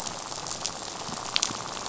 {"label": "biophony, rattle", "recorder": "SoundTrap 500"}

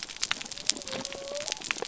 {"label": "biophony", "recorder": "SoundTrap 300"}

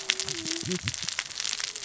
{"label": "biophony, cascading saw", "recorder": "SoundTrap 600 or HydroMoth"}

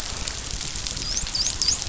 {"label": "biophony, dolphin", "recorder": "SoundTrap 500"}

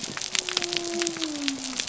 {"label": "biophony", "recorder": "SoundTrap 300"}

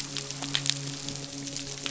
{"label": "biophony, midshipman", "recorder": "SoundTrap 500"}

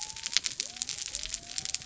{"label": "biophony", "recorder": "SoundTrap 300"}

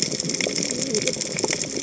{"label": "biophony, cascading saw", "recorder": "HydroMoth"}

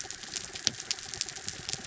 {"label": "anthrophony, mechanical", "recorder": "SoundTrap 300"}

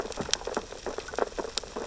{"label": "biophony, sea urchins (Echinidae)", "recorder": "SoundTrap 600 or HydroMoth"}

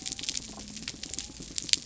{"label": "biophony", "recorder": "SoundTrap 300"}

